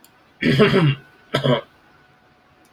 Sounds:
Throat clearing